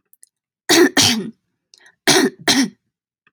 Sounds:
Throat clearing